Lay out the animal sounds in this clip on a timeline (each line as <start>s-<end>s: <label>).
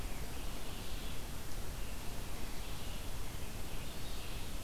0.0s-4.5s: Red-eyed Vireo (Vireo olivaceus)
1.8s-4.6s: American Robin (Turdus migratorius)